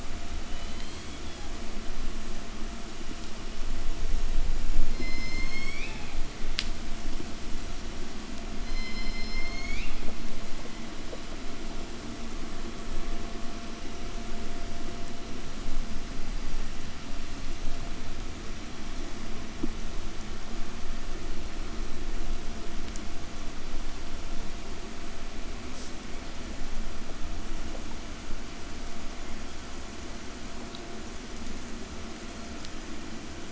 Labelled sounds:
0.2	1.7	killer whale, southern resident, 0.71 to 5.0 kHz
4.1	6.6	killer whale, southern resident, call S01, 0.69 to 8.0 kHz
7.7	10.8	killer whale, southern resident, call S01, 0.85 to 8.0 kHz
25.5	26.0	killer whale, southern resident, 2.2 to 8.0 kHz

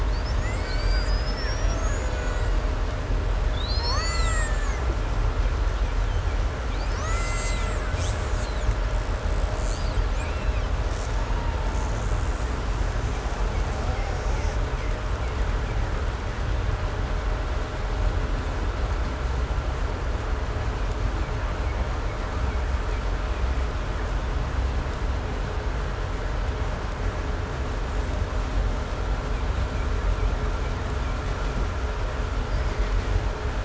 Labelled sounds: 0.0	2.8	killer whale, Bigg's (transient), 0.49 to 8.0 kHz
3.3	5.0	killer whale, Bigg's (transient), 0.59 to 8.0 kHz
6.6	8.6	killer whale, Bigg's (transient), 0.63 to 8.0 kHz
8.8	10.7	killer whale, Bigg's (transient), 0.67 to 8.0 kHz
11.3	15.8	killer whale, 0.72 to 8.0 kHz

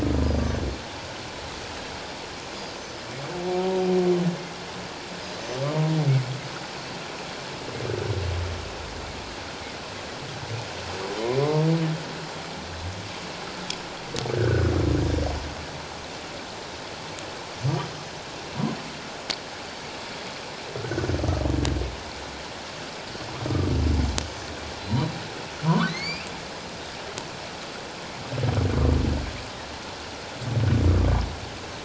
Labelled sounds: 2.5	2.8	Pacific white-sided dolphin, 4.7 to 5.1 kHz
11.4	11.7	humpback whale, 0.97 to 1.1 kHz
14.3	14.7	humpback whale, 1.4 to 1.7 kHz
20.8	21.0	humpback whale, 1.3 to 1.6 kHz
23.5	23.7	humpback whale, 1.1 to 1.3 kHz
24.8	26.3	humpback whale, 0.91 to 5.0 kHz

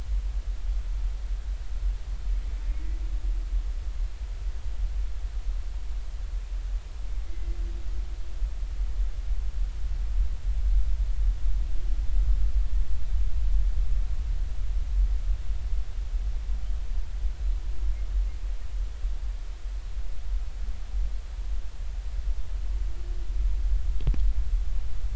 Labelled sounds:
7.3	7.6	humpback whale, 2.0 to 2.2 kHz

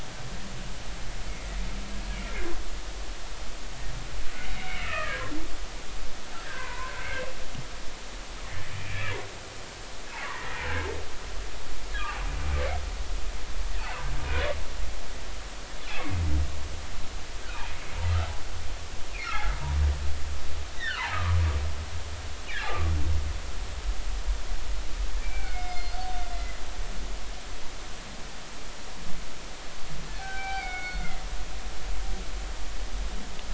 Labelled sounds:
4.5	5.3	humpback whale, 1.1 to 3.0 kHz
6.4	7.2	humpback whale, 0.90 to 1.9 kHz
9.7	10.5	humpback whale, 0.90 to 2.5 kHz
13.8	14.0	humpback whale, 2.4 to 2.8 kHz
15.9	16.2	humpback whale, 2.0 to 2.3 kHz
17.4	17.8	humpback whale, 1.2 to 2.6 kHz
19.1	19.5	humpback whale, 2.0 to 2.6 kHz
20.8	21.4	humpback whale, 0.96 to 2.0 kHz
22.7	22.9	humpback whale, 1.1 to 1.3 kHz
25.2	26.0	humpback whale, 1.4 to 5.1 kHz
30.2	31.3	humpback whale, 0.80 to 4.4 kHz

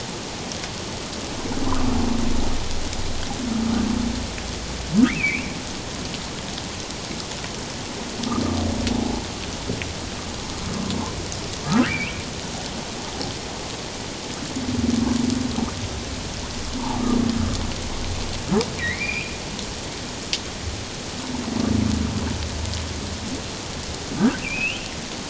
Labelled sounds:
1.7	2.0	humpback whale, 1.1 to 1.5 kHz
5.0	5.6	humpback whale, 1.2 to 2.8 kHz
11.6	12.3	humpback whale, 1.2 to 2.9 kHz
16.8	17.2	humpback whale, 0.78 to 1.3 kHz
18.8	19.4	humpback whale, 1.8 to 2.8 kHz
24.4	24.8	humpback whale, 2.3 to 3.3 kHz

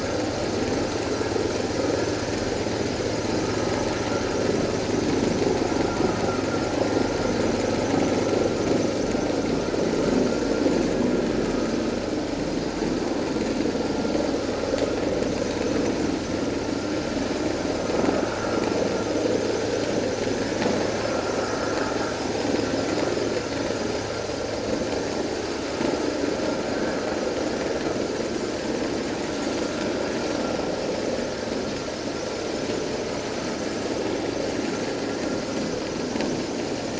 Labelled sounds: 18.1	18.4	vessel noise, 1.4 to 1.6 kHz

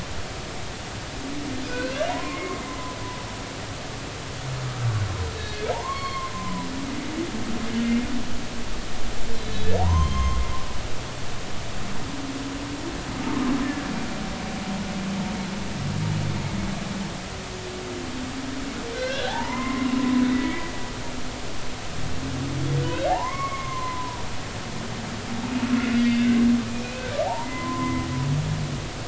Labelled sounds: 1.6	3.0	humpback whale, 0.90 to 2.9 kHz
5.4	6.7	humpback whale, 0.80 to 4.4 kHz
9.3	10.4	humpback whale, 0.80 to 6.4 kHz
13.6	13.9	humpback whale, 1.6 to 1.8 kHz
18.9	19.9	humpback whale, 0.80 to 2.2 kHz
20.3	20.7	humpback whale, 1.8 to 2.4 kHz
22.8	24.2	humpback whale, 0.80 to 2.3 kHz
26.0	26.2	humpback whale, 2.0 to 2.2 kHz
26.7	28.1	humpback whale, 0.80 to 2.6 kHz

